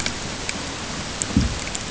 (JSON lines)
{"label": "ambient", "recorder": "HydroMoth"}